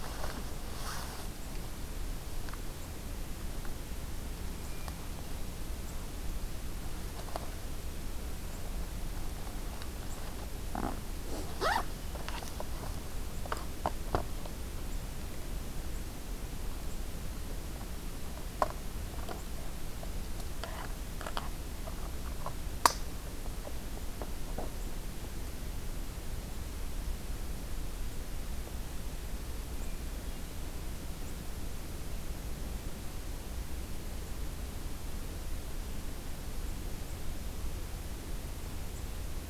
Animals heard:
forest ambience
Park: Acadia National Park